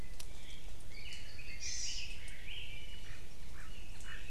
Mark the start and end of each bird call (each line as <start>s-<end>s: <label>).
0.2s-0.9s: Chinese Hwamei (Garrulax canorus)
0.8s-1.8s: Apapane (Himatione sanguinea)
0.8s-3.0s: Red-billed Leiothrix (Leiothrix lutea)
1.6s-2.2s: Hawaii Amakihi (Chlorodrepanis virens)
3.0s-4.3s: Chinese Hwamei (Garrulax canorus)